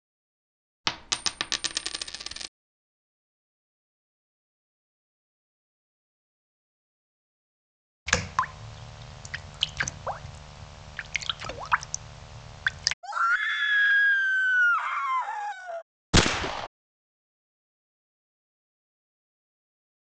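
First, a coin drops. Then you can hear raindrops. Next, someone screams. Finally, gunfire is heard.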